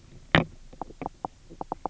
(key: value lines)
label: biophony, knock croak
recorder: SoundTrap 300